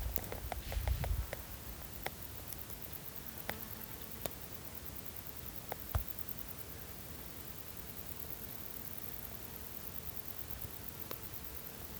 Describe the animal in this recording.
Decticus verrucivorus, an orthopteran